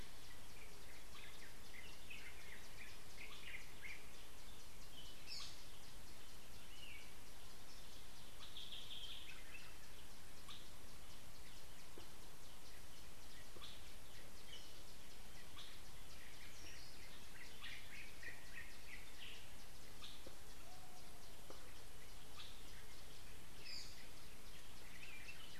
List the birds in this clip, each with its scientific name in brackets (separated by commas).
Gray-throated Barbet (Gymnobucco bonapartei), Yellow-whiskered Greenbul (Eurillas latirostris)